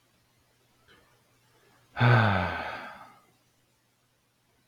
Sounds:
Sigh